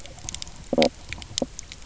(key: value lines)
label: biophony, stridulation
recorder: SoundTrap 300